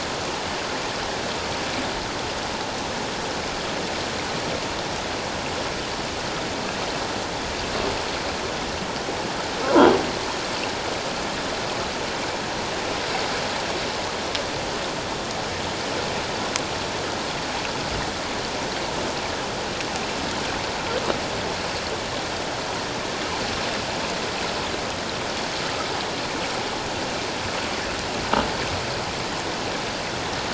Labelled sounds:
9.6	10.0	croaking sound likely from a nearby submerged object, 0.91 to 1.7 kHz

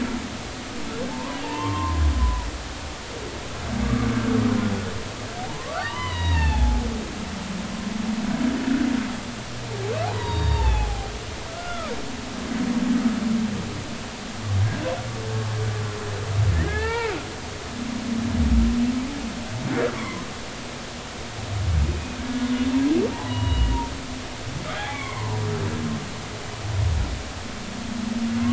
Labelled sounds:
1.1	2.5	humpback whale, 0.80 to 1.2 kHz
3.8	4.1	humpback whale, 1.1 to 1.2 kHz
5.4	6.8	humpback whale, 0.80 to 4.6 kHz
10.0	11.9	humpback whale, 0.80 to 4.8 kHz
16.6	17.2	humpback whale, 0.83 to 2.8 kHz
20.0	20.2	humpback whale, 0.96 to 1.2 kHz
21.8	22.5	humpback whale, 1.5 to 2.5 kHz
23.1	23.7	humpback whale, 0.80 to 3.0 kHz
24.8	25.4	humpback whale, 0.86 to 2.3 kHz

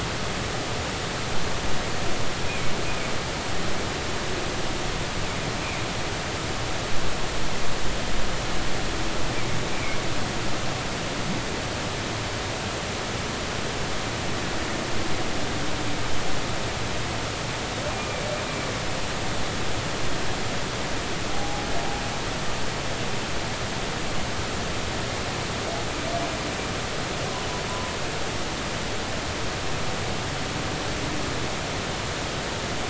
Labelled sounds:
9.7	10.0	humpback whale, 2.1 to 2.4 kHz
21.3	21.6	humpback whale, 0.80 to 0.93 kHz
27.7	27.9	humpback whale, 0.90 to 1.1 kHz

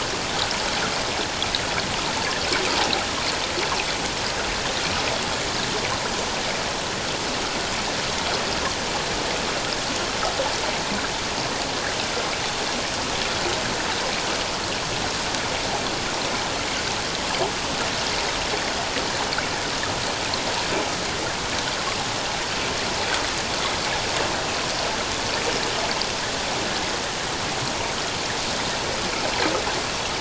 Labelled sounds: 2.7	2.9	water noise, 0.78 to 0.97 kHz

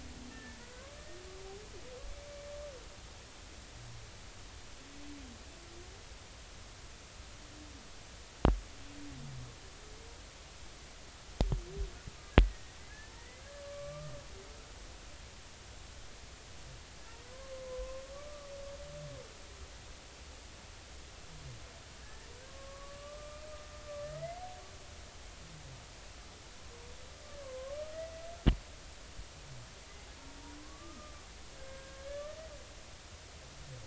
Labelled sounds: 0.3	0.9	humpback whale, 1.4 to 1.9 kHz
12.4	12.8	humpback whale, 1.8 to 2.0 kHz
13.1	14.1	humpback whale, 1.0 to 2.1 kHz
17.3	18.5	humpback whale, 0.96 to 1.2 kHz
22.0	23.5	humpback whale, 1.0 to 1.9 kHz
24.0	24.4	humpback whale, 1.7 to 2.1 kHz
27.4	27.8	humpback whale, 0.99 to 1.2 kHz
30.6	31.2	humpback whale, 0.99 to 1.3 kHz
31.5	32.4	humpback whale, 1.1 to 1.8 kHz

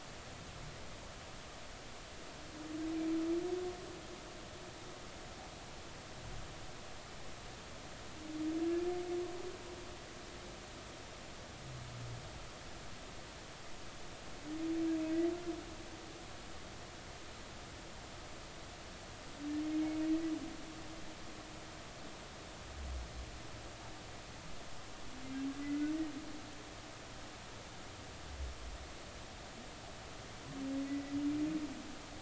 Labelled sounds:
25.6	25.9	humpback whale, 1.9 to 2.1 kHz
30.9	31.1	humpback whale, 1.9 to 2.0 kHz

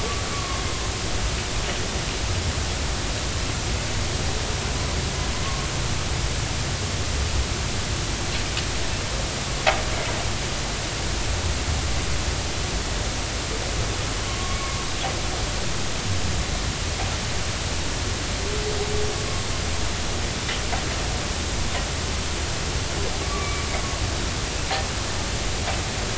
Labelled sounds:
0.3	0.6	humpback whale, 1.0 to 1.2 kHz
5.4	5.7	humpback whale, 1.0 to 1.2 kHz
14.3	14.8	humpback whale, 1.0 to 2.3 kHz
23.2	23.6	humpback whale, 1.1 to 2.4 kHz

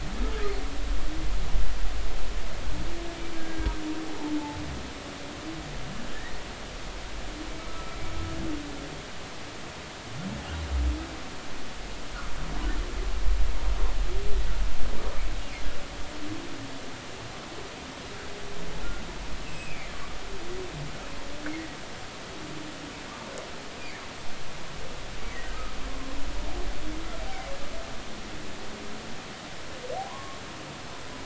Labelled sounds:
3.3	3.7	humpback whale, 1.5 to 1.7 kHz
7.6	8.0	humpback whale, 1.2 to 1.4 kHz
19.5	19.9	humpback whale, 2.0 to 2.8 kHz
23.8	24.0	humpback whale, 2.0 to 2.5 kHz
30.1	30.4	humpback whale, 0.80 to 1.2 kHz

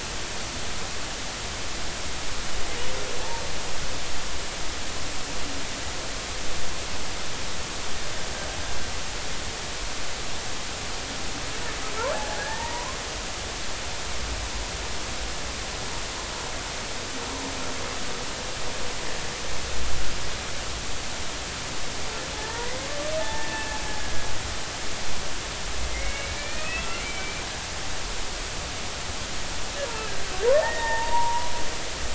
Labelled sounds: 12.1	13.0	humpback whale, 0.80 to 2.0 kHz
22.3	24.3	humpback whale, 0.83 to 2.1 kHz
25.9	27.4	humpback whale, 1.7 to 2.9 kHz
30.5	31.5	humpback whale, 0.83 to 2.0 kHz

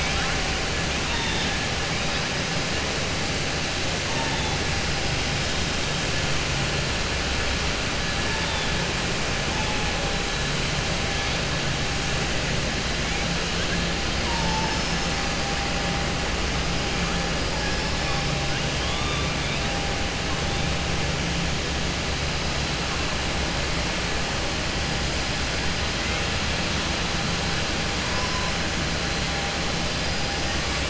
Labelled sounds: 18.7	19.2	killer whale, southern resident, 3.1 to 3.8 kHz

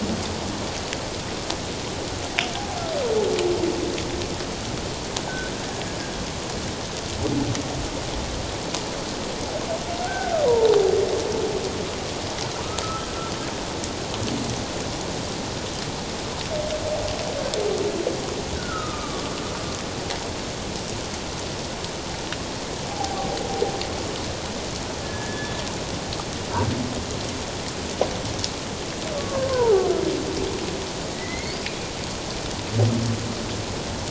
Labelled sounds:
10.0	10.3	humpback whale, 1.4 to 1.6 kHz
12.8	13.1	humpback whale, 1.2 to 1.4 kHz
18.6	19.3	humpback whale, 1.1 to 1.6 kHz
22.9	23.3	humpback whale, 0.78 to 0.91 kHz
25.0	25.5	humpback whale, 1.6 to 1.8 kHz
29.2	29.8	humpback whale, 0.78 to 1.2 kHz
31.1	31.6	humpback whale, 1.9 to 2.3 kHz

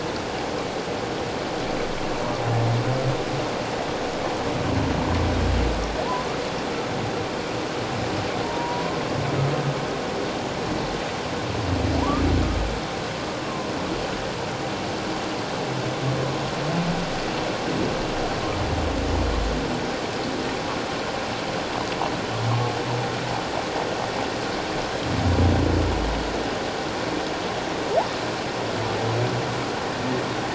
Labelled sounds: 8.4	9.0	humpback whale, 0.91 to 1.1 kHz

